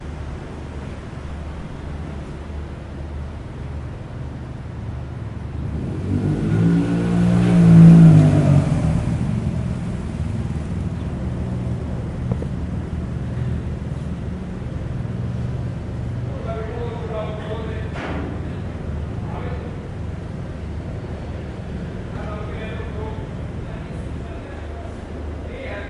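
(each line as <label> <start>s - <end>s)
A car engine rumbles. 4.5s - 11.5s
A man is talking in the background. 16.0s - 20.5s
People talking in the background. 22.1s - 25.9s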